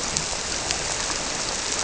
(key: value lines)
label: biophony
recorder: SoundTrap 300